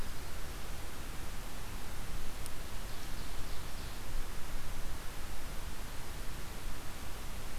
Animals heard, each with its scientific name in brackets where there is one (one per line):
Ovenbird (Seiurus aurocapilla)